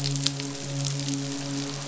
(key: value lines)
label: biophony, midshipman
recorder: SoundTrap 500